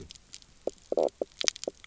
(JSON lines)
{"label": "biophony, knock croak", "recorder": "SoundTrap 300"}